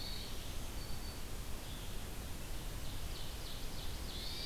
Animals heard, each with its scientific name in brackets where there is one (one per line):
Ovenbird (Seiurus aurocapilla)
Black-throated Green Warbler (Setophaga virens)
Hermit Thrush (Catharus guttatus)